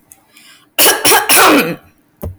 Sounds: Throat clearing